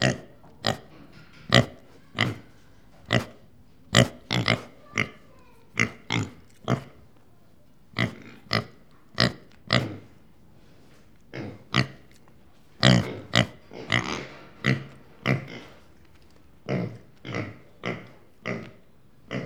Is a person making these sounds?
no